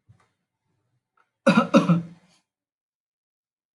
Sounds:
Cough